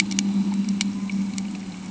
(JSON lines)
{"label": "anthrophony, boat engine", "recorder": "HydroMoth"}